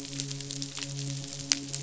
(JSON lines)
{"label": "biophony, midshipman", "recorder": "SoundTrap 500"}